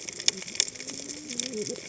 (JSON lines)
{"label": "biophony, cascading saw", "recorder": "HydroMoth"}